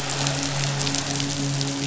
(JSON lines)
{"label": "biophony, midshipman", "recorder": "SoundTrap 500"}